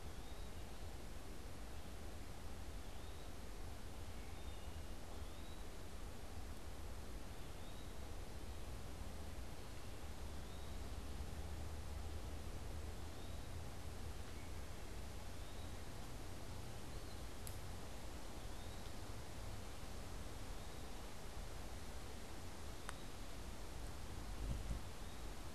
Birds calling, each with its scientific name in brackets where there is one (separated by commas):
Wood Thrush (Hylocichla mustelina), unidentified bird, Eastern Wood-Pewee (Contopus virens)